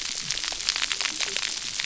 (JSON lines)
{"label": "biophony, cascading saw", "recorder": "SoundTrap 300"}